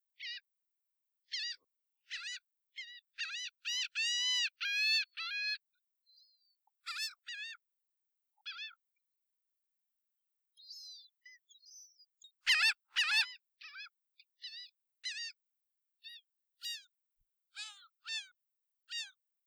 Are the birds outside?
yes